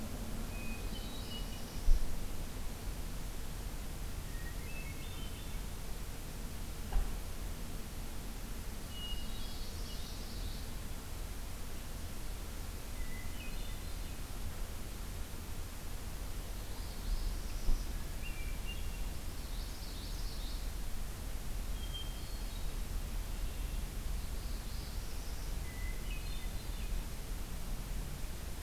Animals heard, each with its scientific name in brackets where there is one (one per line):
Northern Parula (Setophaga americana)
Common Yellowthroat (Geothlypis trichas)
Hermit Thrush (Catharus guttatus)